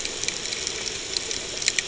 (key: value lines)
label: ambient
recorder: HydroMoth